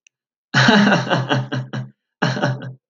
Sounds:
Laughter